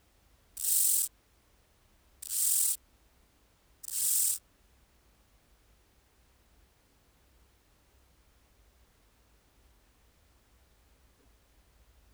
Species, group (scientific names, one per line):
Chorthippus dichrous
Orthoptera